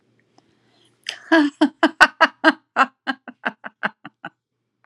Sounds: Laughter